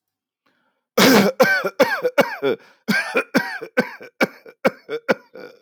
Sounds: Cough